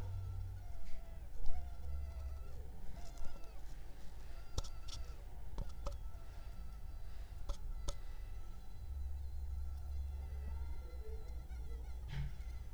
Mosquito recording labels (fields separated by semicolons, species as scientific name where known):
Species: Culex pipiens complex; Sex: female; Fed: unfed; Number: one; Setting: cup